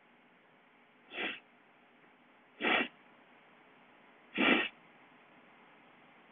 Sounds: Sniff